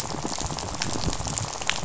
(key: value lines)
label: biophony, rattle
recorder: SoundTrap 500